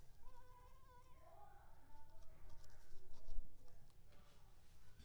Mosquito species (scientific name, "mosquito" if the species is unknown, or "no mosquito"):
Culex pipiens complex